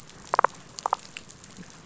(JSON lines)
{"label": "biophony, damselfish", "recorder": "SoundTrap 500"}